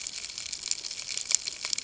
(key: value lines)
label: ambient
recorder: HydroMoth